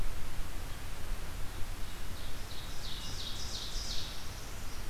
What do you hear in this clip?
Ovenbird, Northern Parula